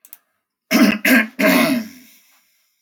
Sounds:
Throat clearing